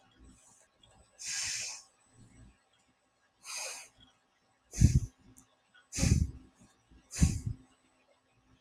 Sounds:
Sniff